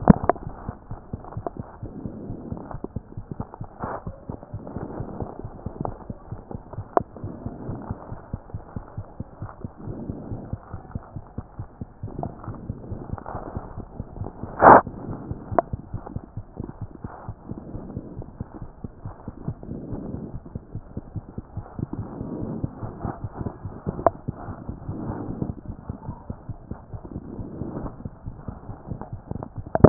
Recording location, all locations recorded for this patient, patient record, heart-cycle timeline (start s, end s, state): aortic valve (AV)
aortic valve (AV)+mitral valve (MV)
#Age: Child
#Sex: Female
#Height: 86.0 cm
#Weight: 11.6 kg
#Pregnancy status: False
#Murmur: Absent
#Murmur locations: nan
#Most audible location: nan
#Systolic murmur timing: nan
#Systolic murmur shape: nan
#Systolic murmur grading: nan
#Systolic murmur pitch: nan
#Systolic murmur quality: nan
#Diastolic murmur timing: nan
#Diastolic murmur shape: nan
#Diastolic murmur grading: nan
#Diastolic murmur pitch: nan
#Diastolic murmur quality: nan
#Outcome: Abnormal
#Campaign: 2014 screening campaign
0.00	15.18	unannotated
15.18	15.28	systole
15.28	15.32	S2
15.32	15.50	diastole
15.50	15.62	S1
15.62	15.72	systole
15.72	15.80	S2
15.80	15.94	diastole
15.94	16.02	S1
16.02	16.14	systole
16.14	16.22	S2
16.22	16.38	diastole
16.38	16.46	S1
16.46	16.58	systole
16.58	16.68	S2
16.68	16.82	diastole
16.82	16.90	S1
16.90	17.04	systole
17.04	17.12	S2
17.12	17.28	diastole
17.28	17.36	S1
17.36	17.50	systole
17.50	17.58	S2
17.58	17.76	diastole
17.76	17.84	S1
17.84	17.96	systole
17.96	18.02	S2
18.02	18.18	diastole
18.18	18.26	S1
18.26	18.40	systole
18.40	18.44	S2
18.44	18.62	diastole
18.62	18.70	S1
18.70	18.84	systole
18.84	18.90	S2
18.90	19.04	diastole
19.04	19.14	S1
19.14	19.28	systole
19.28	19.34	S2
19.34	19.37	diastole
19.37	29.89	unannotated